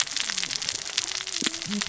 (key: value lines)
label: biophony, cascading saw
recorder: SoundTrap 600 or HydroMoth